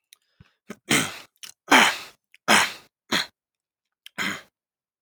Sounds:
Throat clearing